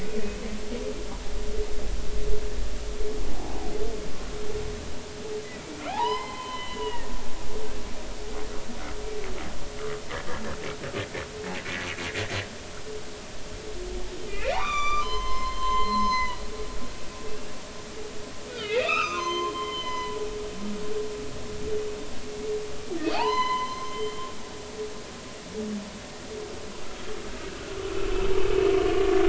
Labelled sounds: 0.2	0.5	humpback whale, 2.5 to 2.6 kHz
5.9	7.1	humpback whale, 0.80 to 5.2 kHz
14.3	16.4	humpback whale, 0.80 to 7.2 kHz
17.3	17.5	humpback whale, 2.6 to 2.9 kHz
18.5	20.2	humpback whale, 0.96 to 6.3 kHz
23.1	24.3	humpback whale, 0.80 to 6.2 kHz

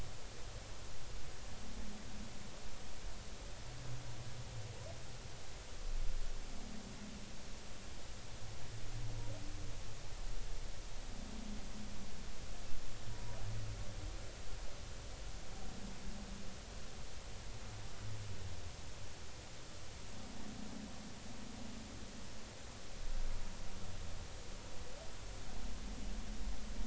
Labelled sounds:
13.1	13.4	humpback whale, 0.93 to 1.0 kHz

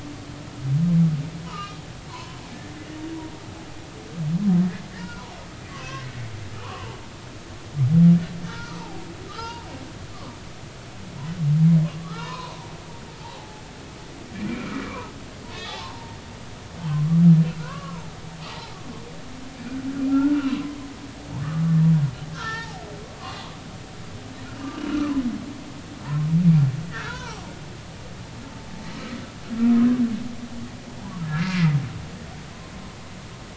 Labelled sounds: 1.5	2.4	humpback whale, 0.90 to 3.1 kHz
5.7	7.0	humpback whale, 0.83 to 2.8 kHz
8.5	9.7	humpback whale, 0.80 to 4.8 kHz
10.1	10.4	humpback whale, 0.90 to 1.2 kHz
11.8	12.7	humpback whale, 0.80 to 4.0 kHz
13.4	13.6	humpback whale, 0.80 to 0.90 kHz
14.3	15.1	humpback whale, 0.83 to 2.5 kHz
15.5	16.2	humpback whale, 0.80 to 3.5 kHz
17.6	18.1	humpback whale, 0.80 to 1.7 kHz
20.1	20.8	humpback whale, 0.96 to 3.0 kHz
22.3	23.4	humpback whale, 0.80 to 4.7 kHz
26.0	26.3	humpback whale, 0.86 to 1.1 kHz
26.9	27.4	humpback whale, 0.80 to 2.0 kHz
31.3	31.8	humpback whale, 1.2 to 2.2 kHz

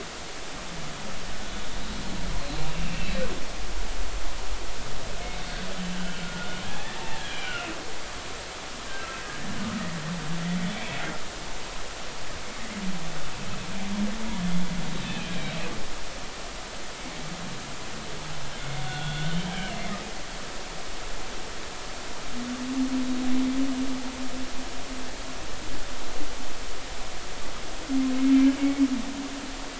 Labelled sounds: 2.7	3.2	humpback whale, 2.5 to 2.8 kHz
6.0	7.8	humpback whale, 0.80 to 3.4 kHz
10.7	11.0	humpback whale, 2.1 to 2.4 kHz
12.4	12.7	humpback whale, 1.9 to 2.2 kHz
15.0	15.3	humpback whale, 2.3 to 2.7 kHz
18.6	19.4	humpback whale, 1.4 to 3.7 kHz
19.7	20.1	humpback whale, 1.8 to 2.2 kHz
28.6	28.9	humpback whale, 2.2 to 2.3 kHz

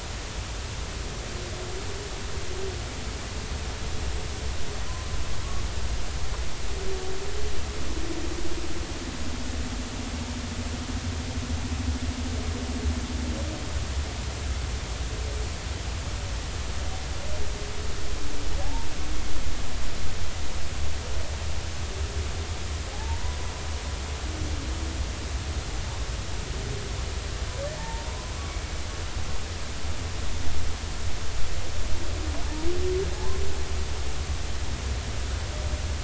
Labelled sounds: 18.6	18.9	humpback whale, 0.80 to 0.99 kHz
22.9	23.4	humpback whale, 0.80 to 1.0 kHz
27.8	28.3	humpback whale, 0.83 to 1.1 kHz
33.1	33.4	humpback whale, 0.80 to 1.1 kHz

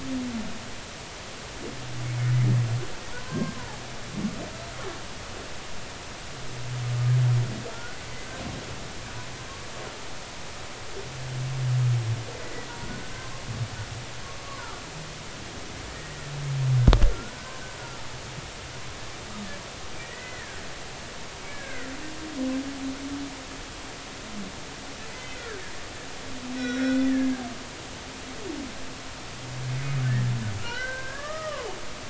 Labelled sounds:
3.2	3.5	humpback whale, 0.99 to 1.6 kHz
12.3	12.7	humpback whale, 1.9 to 2.1 kHz
14.4	14.7	humpback whale, 0.90 to 1.2 kHz
15.9	16.2	humpback whale, 1.8 to 2.0 kHz
17.1	17.6	humpback whale, 1.3 to 1.7 kHz
20.0	20.6	humpback whale, 1.5 to 2.1 kHz
21.4	21.9	humpback whale, 1.3 to 2.3 kHz
25.1	25.4	humpback whale, 2.0 to 2.1 kHz
26.6	27.3	humpback whale, 1.4 to 4.0 kHz
29.7	29.9	humpback whale, 2.1 to 2.2 kHz
30.6	31.7	humpback whale, 0.96 to 3.1 kHz

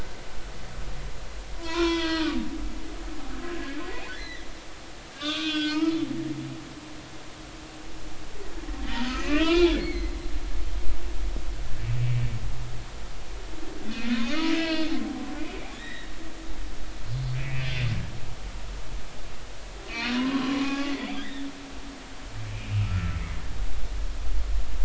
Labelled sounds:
1.6	4.4	humpback whale, 0.93 to 4.2 kHz
5.1	6.0	humpback whale, 0.86 to 5.0 kHz
9.0	10.1	humpback whale, 1.1 to 6.9 kHz
12.0	12.3	humpback whale, 2.2 to 2.3 kHz
14.2	14.9	humpback whale, 0.99 to 5.3 kHz
15.4	16.1	humpback whale, 1.7 to 4.0 kHz
17.3	17.7	humpback whale, 1.9 to 2.7 kHz
19.9	21.5	humpback whale, 0.80 to 4.0 kHz
22.6	23.2	humpback whale, 1.2 to 2.9 kHz

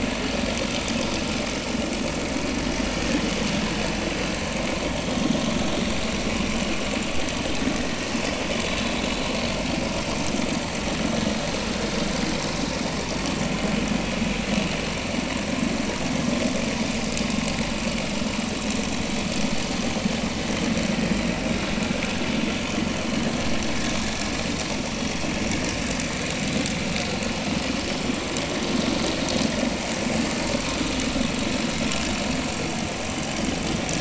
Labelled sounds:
33.7	33.9	vessel noise, 3.1 to 3.4 kHz

